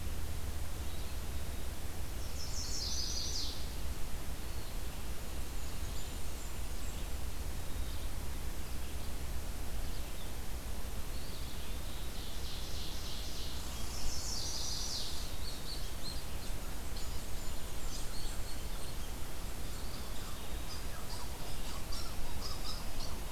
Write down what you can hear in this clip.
Red-eyed Vireo, Chestnut-sided Warbler, Blackburnian Warbler, Ovenbird, unknown mammal, Eastern Wood-Pewee